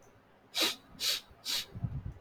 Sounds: Sniff